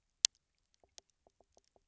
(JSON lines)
{"label": "biophony", "recorder": "SoundTrap 300"}